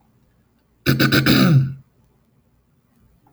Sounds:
Throat clearing